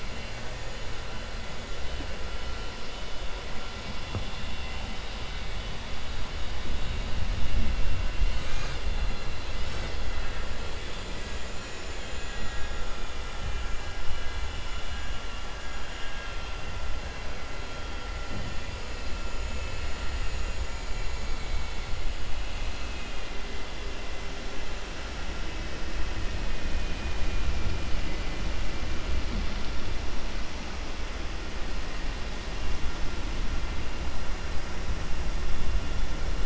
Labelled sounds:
11.9	12.8	vessel noise, 1.3 to 3.9 kHz
14.6	15.5	vessel noise, 2.1 to 3.7 kHz
26.7	27.4	vessel noise, 1.8 to 3.1 kHz

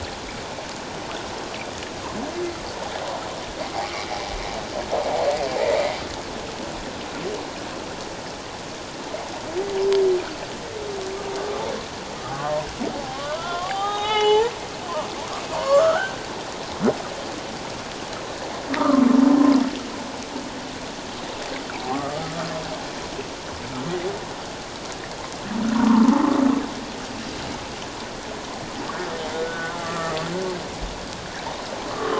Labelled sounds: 3.8	4.1	humpback whale, 2.0 to 2.4 kHz
12.3	12.7	humpback whale, 0.91 to 1.2 kHz
13.1	14.5	humpback whale, 0.78 to 3.9 kHz
15.6	16.2	humpback whale, 0.94 to 3.3 kHz
18.8	19.1	humpback whale, 1.0 to 1.4 kHz
21.7	22.2	humpback whale, 0.78 to 1.3 kHz
25.9	26.2	humpback whale, 0.84 to 1.2 kHz
29.3	30.2	humpback whale, 1.1 to 1.6 kHz

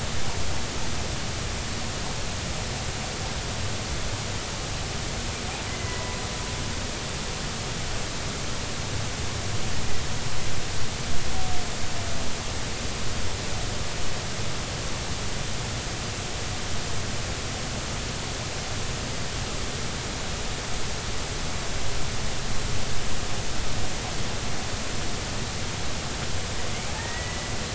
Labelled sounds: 5.7	6.2	humpback whale, 0.93 to 2.1 kHz
26.9	27.5	humpback whale, 1.7 to 2.0 kHz

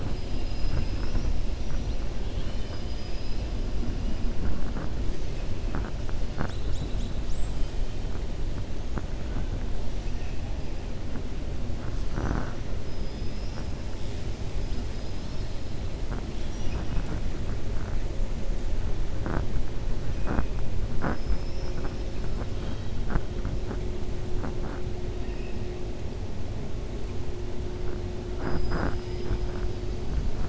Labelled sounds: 2.2	3.4	killer whale, 2.4 to 5.5 kHz
21.0	22.1	killer whale, 5.1 to 5.8 kHz
28.4	29.4	killer whale, 4.3 to 5.5 kHz

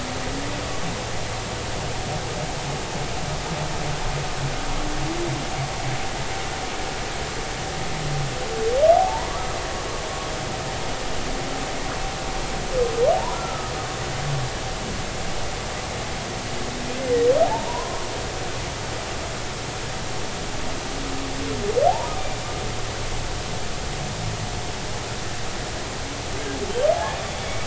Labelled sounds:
9.0	9.3	humpback whale, 0.80 to 1.1 kHz
13.1	13.7	humpback whale, 0.80 to 1.4 kHz
17.4	18.0	humpback whale, 0.80 to 1.2 kHz
21.9	22.1	humpback whale, 0.80 to 1.1 kHz
26.9	27.6	humpback whale, 0.80 to 3.5 kHz

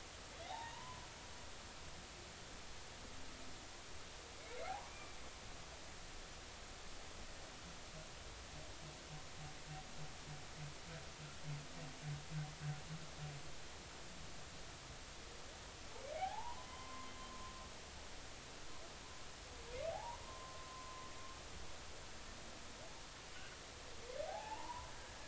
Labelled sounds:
0.5	1.1	humpback whale, 0.80 to 3.9 kHz
4.7	5.2	humpback whale, 0.80 to 2.4 kHz
16.2	17.2	humpback whale, 0.80 to 3.1 kHz
19.9	21.1	humpback whale, 0.80 to 1.1 kHz
24.3	24.9	humpback whale, 0.80 to 1.1 kHz

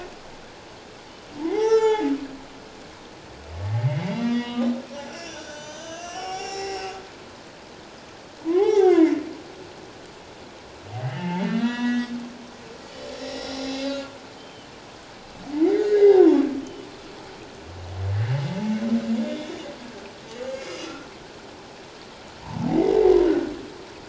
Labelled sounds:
1.5	2.1	humpback whale, 0.78 to 7.2 kHz
3.8	6.9	humpback whale, 0.78 to 7.2 kHz
8.5	9.2	humpback whale, 0.78 to 6.1 kHz
11.1	12.1	humpback whale, 0.84 to 4.9 kHz
13.2	14.7	humpback whale, 2.9 to 8.0 kHz
15.7	16.2	humpback whale, 1.5 to 2.2 kHz
16.6	16.9	humpback whale, 2.9 to 3.1 kHz
20.5	21.1	humpback whale, 2.0 to 2.7 kHz
22.4	22.7	humpback whale, 0.81 to 1.1 kHz
23.2	23.5	humpback whale, 1.4 to 1.6 kHz

